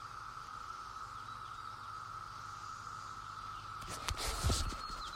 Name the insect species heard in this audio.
Magicicada septendecula